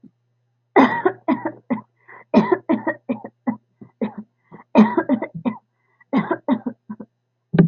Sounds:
Cough